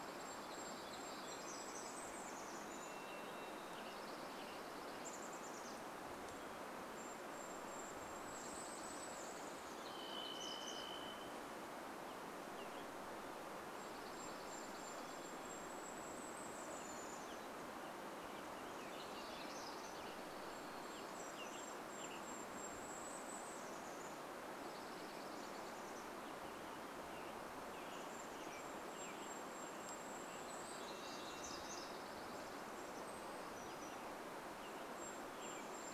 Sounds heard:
Chestnut-backed Chickadee call
warbler song
Varied Thrush song
Western Tanager song
Golden-crowned Kinglet song
Dark-eyed Junco song

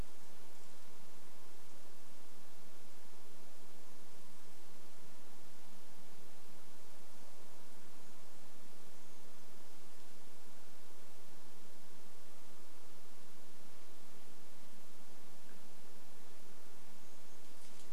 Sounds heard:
Brown Creeper call

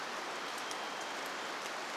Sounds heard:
Brown Creeper call
Varied Thrush song
rain

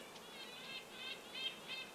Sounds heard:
insect buzz
Red-breasted Nuthatch song

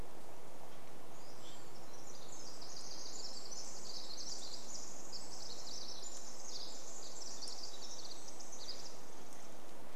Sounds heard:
Pacific-slope Flycatcher song
Pacific Wren song

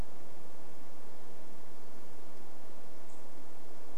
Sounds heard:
unidentified bird chip note

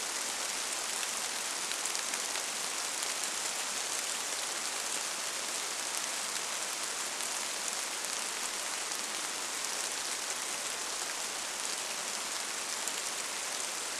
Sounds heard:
rain

